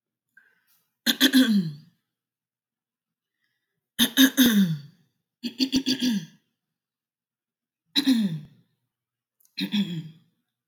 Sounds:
Throat clearing